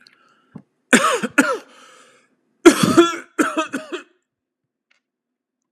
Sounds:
Cough